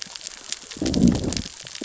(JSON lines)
{"label": "biophony, growl", "recorder": "SoundTrap 600 or HydroMoth"}